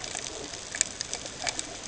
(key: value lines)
label: ambient
recorder: HydroMoth